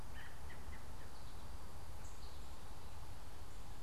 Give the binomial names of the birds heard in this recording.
Turdus migratorius